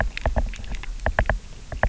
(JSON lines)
{"label": "biophony, knock", "recorder": "SoundTrap 300"}